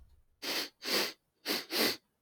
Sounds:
Sniff